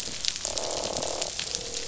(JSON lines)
{"label": "biophony, croak", "recorder": "SoundTrap 500"}